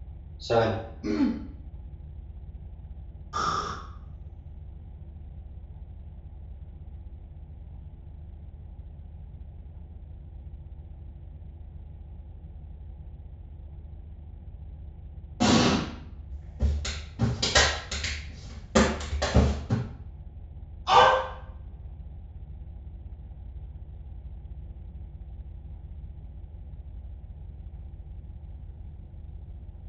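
At 0.43 seconds, a voice says "Seven." After that, at 1.02 seconds, coughing is heard. Next, at 3.33 seconds, breathing can be heard. Following that, at 15.4 seconds, an explosion is audible. Afterwards, from 16.3 to 19.74 seconds, you can hear clapping. After that, at 20.85 seconds, a dog can be heard.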